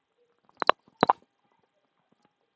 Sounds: Throat clearing